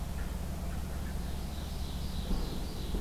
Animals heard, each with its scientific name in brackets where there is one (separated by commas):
Ovenbird (Seiurus aurocapilla)